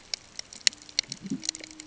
{"label": "ambient", "recorder": "HydroMoth"}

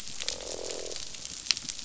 {"label": "biophony, croak", "recorder": "SoundTrap 500"}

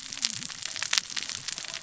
{"label": "biophony, cascading saw", "recorder": "SoundTrap 600 or HydroMoth"}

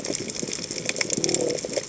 {"label": "biophony", "recorder": "HydroMoth"}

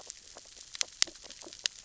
{"label": "biophony, sea urchins (Echinidae)", "recorder": "SoundTrap 600 or HydroMoth"}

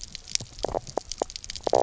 {"label": "biophony, knock croak", "recorder": "SoundTrap 300"}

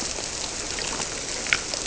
{"label": "biophony", "recorder": "SoundTrap 300"}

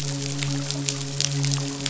{"label": "biophony, midshipman", "recorder": "SoundTrap 500"}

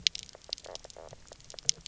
{"label": "biophony, knock croak", "recorder": "SoundTrap 300"}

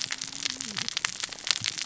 {"label": "biophony, cascading saw", "recorder": "SoundTrap 600 or HydroMoth"}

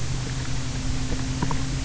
{"label": "anthrophony, boat engine", "recorder": "SoundTrap 300"}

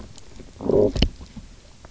{"label": "biophony, low growl", "recorder": "SoundTrap 300"}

